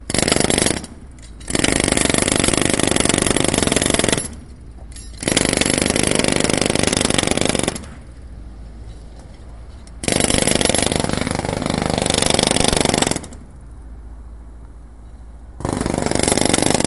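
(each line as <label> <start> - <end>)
A jackhammer makes a repetitive metallic sound while breaking cement. 0.0 - 1.1
A jackhammer is making a hole in the pavement with a repetitive metallic sound. 1.3 - 4.6
A jackhammer repeatedly makes fast, sharp impacts on the pavement. 4.9 - 8.3
A jackhammer is operating, producing a loud metallic sound. 9.8 - 13.8
A jackhammer makes a repetitive, loud metallic sound while breaking pavement. 15.5 - 16.9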